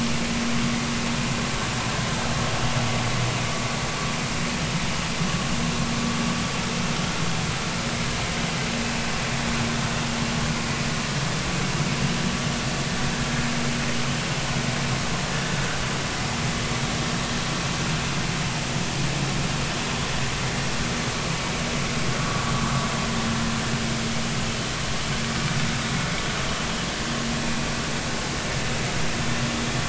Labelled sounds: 22.2	22.5	vessel noise, 1.1 to 1.3 kHz

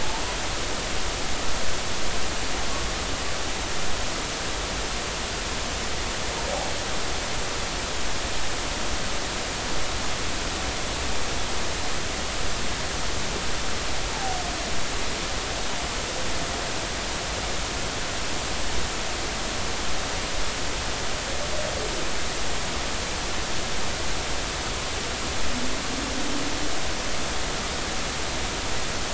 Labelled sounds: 14.1	14.4	humpback whale, 0.80 to 0.93 kHz

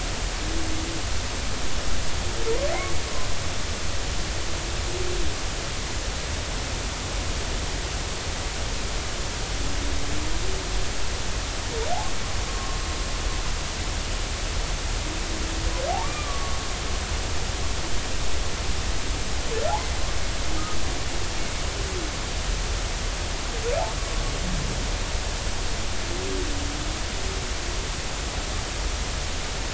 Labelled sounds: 12.5	12.8	humpback whale, 1.0 to 1.2 kHz
16.0	16.6	humpback whale, 1.1 to 2.5 kHz

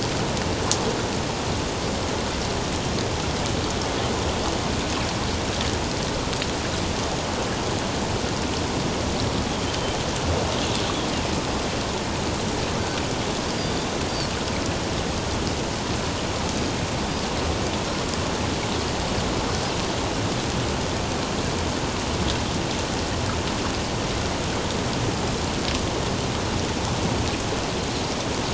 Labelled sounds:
11.2	11.5	Pacific white-sided dolphin, 5.0 to 5.2 kHz

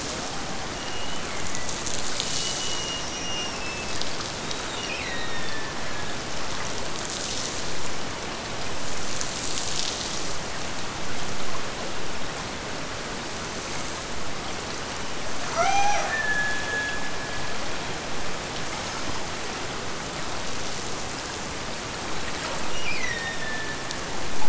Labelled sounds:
0.7	1.8	killer whale, Bigg's (transient), Gulf of Alaska transient, 1.7 to 3.2 kHz
2.1	4.0	killer whale, Bigg's (transient), Gulf of Alaska transient, 2.2 to 6.4 kHz
4.5	6.1	killer whale, Bigg's (transient), Gulf of Alaska transient, 1.5 to 4.1 kHz
15.5	17.6	killer whale, Bigg's (transient), Gulf of Alaska transient, 0.47 to 6.2 kHz
22.7	24.0	killer whale, Bigg's (transient), Gulf of Alaska transient, 1.4 to 6.2 kHz

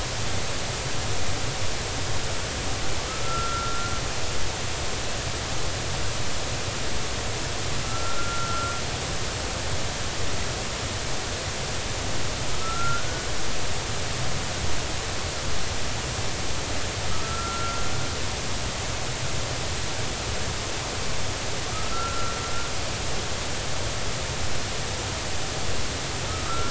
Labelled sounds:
3.2	3.9	humpback whale, 1.3 to 1.4 kHz
7.9	8.8	humpback whale, 1.3 to 1.5 kHz
12.6	13.3	humpback whale, 1.2 to 1.5 kHz
17.1	17.8	humpback whale, 1.2 to 1.4 kHz
21.7	22.4	humpback whale, 1.2 to 1.5 kHz
26.3	26.6	humpback whale, 1.1 to 1.4 kHz

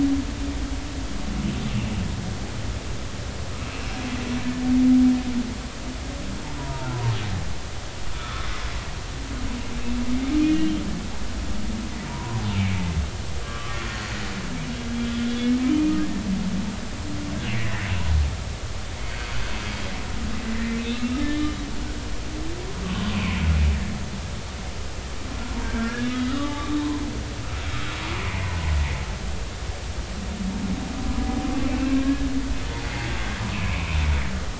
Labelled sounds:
3.6	4.0	humpback whale, 2.4 to 2.8 kHz
6.6	6.9	humpback whale, 0.86 to 1.0 kHz
8.1	8.4	humpback whale, 1.0 to 1.5 kHz
10.5	10.8	humpback whale, 2.8 to 3.2 kHz
12.1	12.9	humpback whale, 0.90 to 2.6 kHz
13.4	13.8	humpback whale, 1.0 to 1.3 kHz
20.8	21.5	humpback whale, 1.2 to 4.0 kHz
25.6	26.8	humpback whale, 1.1 to 2.0 kHz
28.3	28.5	humpback whale, 2.0 to 2.2 kHz
32.0	32.3	humpback whale, 1.6 to 1.8 kHz
33.5	34.0	humpback whale, 2.2 to 2.7 kHz

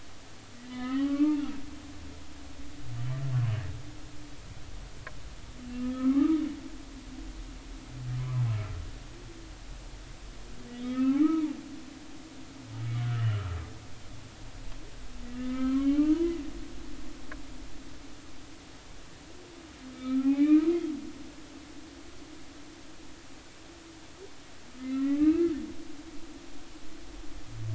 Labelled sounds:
0.7	1.4	humpback whale, 0.96 to 3.1 kHz
5.7	6.4	humpback whale, 0.99 to 1.9 kHz
8.2	8.5	humpback whale, 0.80 to 1.3 kHz
10.8	11.5	humpback whale, 0.80 to 2.4 kHz
13.1	13.6	humpback whale, 1.2 to 3.1 kHz
15.3	16.3	humpback whale, 0.93 to 3.2 kHz
19.9	20.7	humpback whale, 0.80 to 2.5 kHz
24.8	25.5	humpback whale, 1.2 to 2.2 kHz

